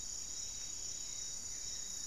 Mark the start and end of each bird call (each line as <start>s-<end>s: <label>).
1.0s-2.1s: Buff-throated Woodcreeper (Xiphorhynchus guttatus)